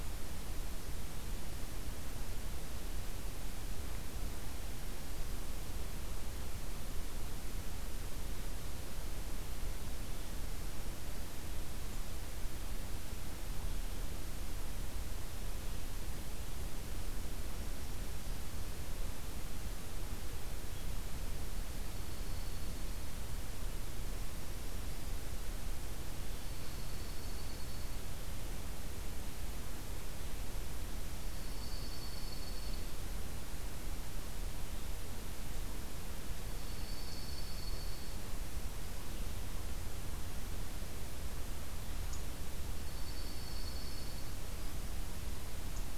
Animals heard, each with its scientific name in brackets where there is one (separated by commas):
Dark-eyed Junco (Junco hyemalis)